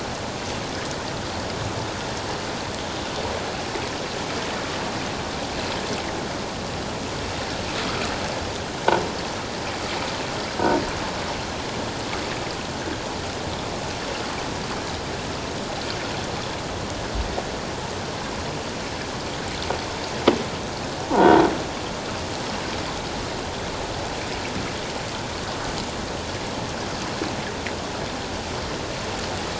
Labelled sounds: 21.1	21.4	croaking sound likely from a nearby submerged object, 0.84 to 1.0 kHz

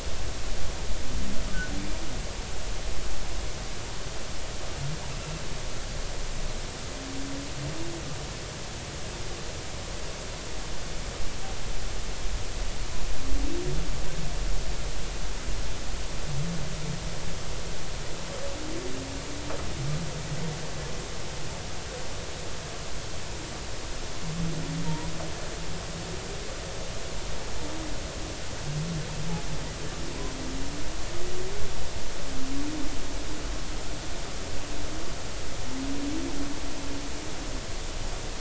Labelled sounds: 24.9	25.1	humpback whale, 0.86 to 1.0 kHz

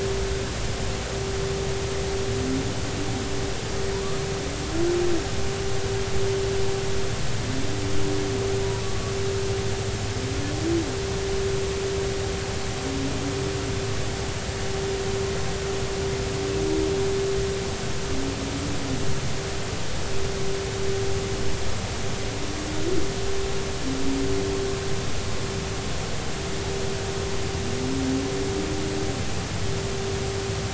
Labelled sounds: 8.8	9.1	humpback whale, 1.1 to 1.2 kHz

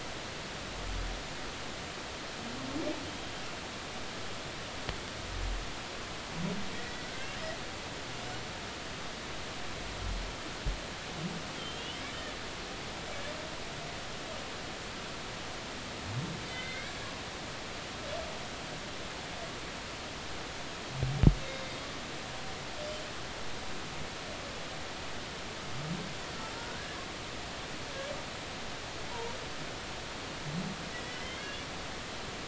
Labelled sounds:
6.7	7.4	humpback whale, 1.4 to 2.2 kHz
11.5	12.0	humpback whale, 2.7 to 3.5 kHz
16.5	16.9	humpback whale, 2.0 to 3.7 kHz
21.4	21.7	humpback whale, 3.6 to 3.8 kHz
22.8	23.1	humpback whale, 7.1 to 7.4 kHz
26.5	27.0	humpback whale, 1.3 to 1.8 kHz
30.9	31.5	humpback whale, 1.9 to 3.4 kHz

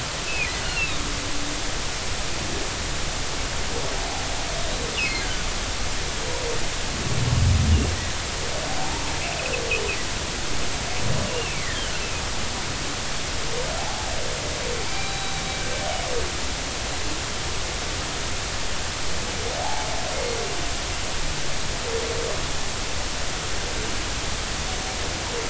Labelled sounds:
0.3	1.0	humpback whale, 1.9 to 2.9 kHz
5.2	5.5	humpback whale, 1.4 to 1.7 kHz
11.3	11.9	humpback whale, 1.5 to 2.9 kHz
13.8	15.3	humpback whale, 0.80 to 4.0 kHz
19.6	19.9	humpback whale, 0.80 to 0.99 kHz

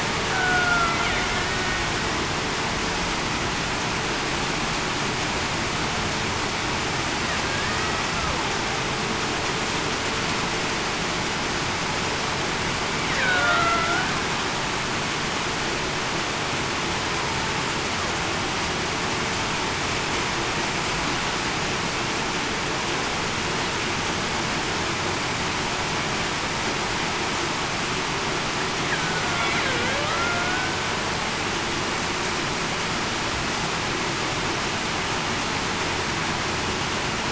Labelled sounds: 0.3	0.8	killer whale, Bigg's (transient), 0.68 to 0.80 kHz
13.2	13.6	killer whale, Bigg's (transient), 1.4 to 1.6 kHz
29.6	30.1	killer whale, Bigg's (transient), 0.47 to 0.63 kHz

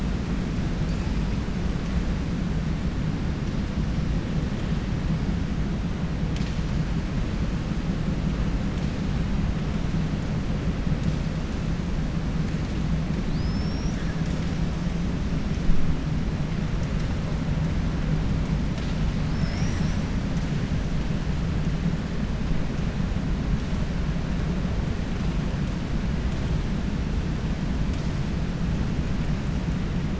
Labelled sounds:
13.2	14.0	killer whale, 4.1 to 7.5 kHz

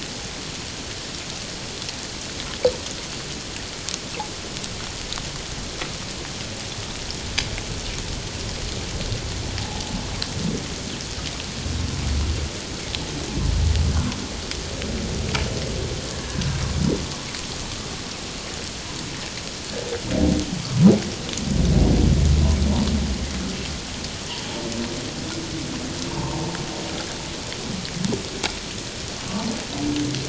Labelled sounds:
16.1	16.4	humpback whale, 1.6 to 1.8 kHz
20.6	20.9	humpback whale, 0.94 to 1.3 kHz
26.1	26.5	humpback whale, 0.84 to 1.1 kHz

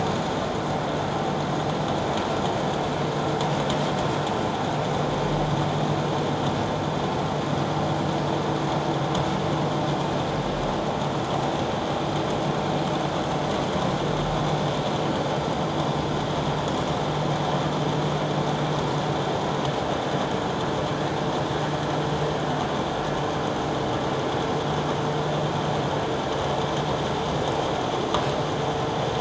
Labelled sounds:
15.4	15.6	vessel noise, 4.7 to 4.8 kHz

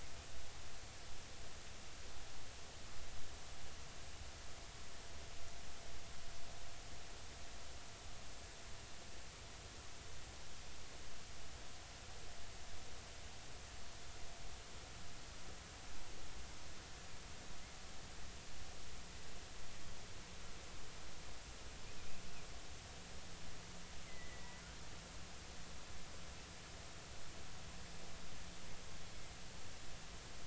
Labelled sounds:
24.1	24.6	killer whale, 1.9 to 2.1 kHz

